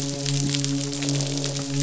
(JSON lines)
{"label": "biophony, midshipman", "recorder": "SoundTrap 500"}
{"label": "biophony, croak", "recorder": "SoundTrap 500"}